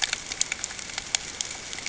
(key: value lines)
label: ambient
recorder: HydroMoth